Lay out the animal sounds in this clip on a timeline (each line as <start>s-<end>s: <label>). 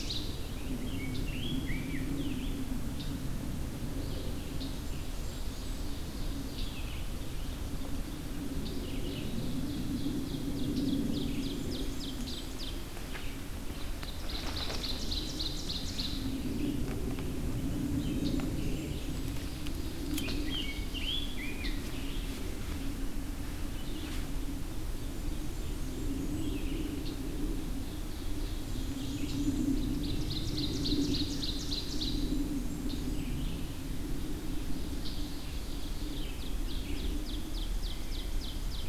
0.0s-37.1s: Red-eyed Vireo (Vireo olivaceus)
0.7s-2.7s: Rose-breasted Grosbeak (Pheucticus ludovicianus)
5.0s-6.9s: Ovenbird (Seiurus aurocapilla)
8.5s-12.8s: Ovenbird (Seiurus aurocapilla)
11.3s-12.6s: Blackburnian Warbler (Setophaga fusca)
14.0s-16.2s: Ovenbird (Seiurus aurocapilla)
17.9s-19.5s: Blackburnian Warbler (Setophaga fusca)
20.1s-21.8s: Rose-breasted Grosbeak (Pheucticus ludovicianus)
24.9s-26.7s: Blackburnian Warbler (Setophaga fusca)
27.6s-32.2s: Ovenbird (Seiurus aurocapilla)
32.0s-33.4s: Blackburnian Warbler (Setophaga fusca)
35.4s-38.9s: Ovenbird (Seiurus aurocapilla)